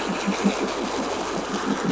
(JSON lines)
{"label": "anthrophony, boat engine", "recorder": "SoundTrap 500"}